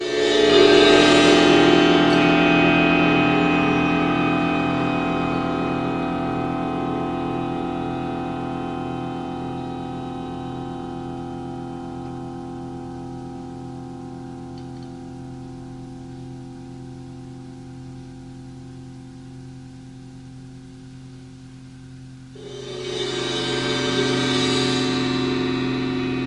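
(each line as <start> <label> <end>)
0.0 A cymbal roll played with mallets. 22.4
22.4 A short cymbal roll played with mallets. 26.3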